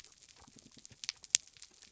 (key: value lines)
label: biophony
recorder: SoundTrap 300